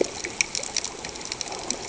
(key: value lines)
label: ambient
recorder: HydroMoth